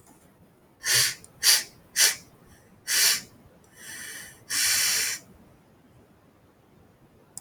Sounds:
Sniff